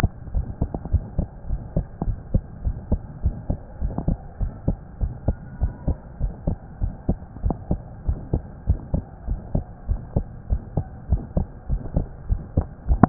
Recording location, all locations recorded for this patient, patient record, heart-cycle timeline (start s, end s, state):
pulmonary valve (PV)
aortic valve (AV)+pulmonary valve (PV)+tricuspid valve (TV)+mitral valve (MV)
#Age: Child
#Sex: Female
#Height: 137.0 cm
#Weight: 28.2 kg
#Pregnancy status: False
#Murmur: Absent
#Murmur locations: nan
#Most audible location: nan
#Systolic murmur timing: nan
#Systolic murmur shape: nan
#Systolic murmur grading: nan
#Systolic murmur pitch: nan
#Systolic murmur quality: nan
#Diastolic murmur timing: nan
#Diastolic murmur shape: nan
#Diastolic murmur grading: nan
#Diastolic murmur pitch: nan
#Diastolic murmur quality: nan
#Outcome: Abnormal
#Campaign: 2015 screening campaign
0.00	1.48	unannotated
1.48	1.60	S1
1.60	1.74	systole
1.74	1.86	S2
1.86	2.06	diastole
2.06	2.20	S1
2.20	2.32	systole
2.32	2.46	S2
2.46	2.64	diastole
2.64	2.78	S1
2.78	2.90	systole
2.90	3.04	S2
3.04	3.24	diastole
3.24	3.38	S1
3.38	3.46	systole
3.46	3.60	S2
3.60	3.82	diastole
3.82	3.96	S1
3.96	4.06	systole
4.06	4.18	S2
4.18	4.40	diastole
4.40	4.50	S1
4.50	4.64	systole
4.64	4.76	S2
4.76	5.00	diastole
5.00	5.14	S1
5.14	5.26	systole
5.26	5.36	S2
5.36	5.60	diastole
5.60	5.72	S1
5.72	5.84	systole
5.84	5.98	S2
5.98	6.22	diastole
6.22	6.32	S1
6.32	6.46	systole
6.46	6.58	S2
6.58	6.80	diastole
6.80	6.94	S1
6.94	7.04	systole
7.04	7.18	S2
7.18	7.44	diastole
7.44	7.58	S1
7.58	7.72	systole
7.72	7.82	S2
7.82	8.06	diastole
8.06	8.18	S1
8.18	8.32	systole
8.32	8.44	S2
8.44	8.68	diastole
8.68	8.82	S1
8.82	8.92	systole
8.92	9.06	S2
9.06	9.26	diastole
9.26	9.40	S1
9.40	9.52	systole
9.52	9.66	S2
9.66	9.88	diastole
9.88	10.02	S1
10.02	10.14	systole
10.14	10.26	S2
10.26	10.50	diastole
10.50	10.64	S1
10.64	10.76	systole
10.76	10.86	S2
10.86	11.10	diastole
11.10	11.22	S1
11.22	11.32	systole
11.32	11.48	S2
11.48	11.68	diastole
11.68	11.82	S1
11.82	11.94	systole
11.94	12.08	S2
12.08	12.30	diastole
12.30	12.44	S1
12.44	12.56	systole
12.56	12.66	S2
12.66	12.86	diastole
12.86	13.00	S1
13.00	13.09	unannotated